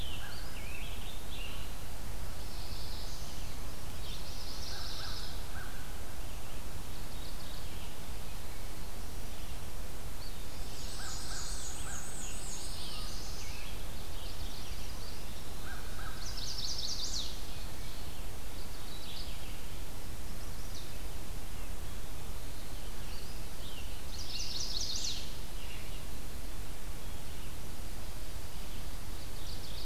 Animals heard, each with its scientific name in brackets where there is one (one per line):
American Crow (Corvus brachyrhynchos)
Mourning Warbler (Geothlypis philadelphia)
Black-and-white Warbler (Mniotilta varia)
Golden-crowned Kinglet (Regulus satrapa)
Chestnut-sided Warbler (Setophaga pensylvanica)
Scarlet Tanager (Piranga olivacea)
Eastern Wood-Pewee (Contopus virens)
Red-eyed Vireo (Vireo olivaceus)